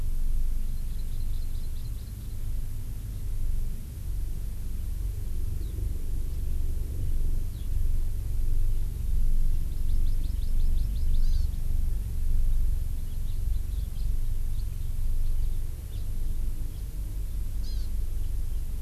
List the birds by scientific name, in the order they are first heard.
Chlorodrepanis virens, Alauda arvensis, Haemorhous mexicanus